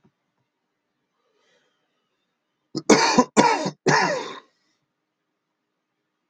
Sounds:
Cough